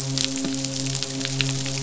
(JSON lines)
{"label": "biophony, midshipman", "recorder": "SoundTrap 500"}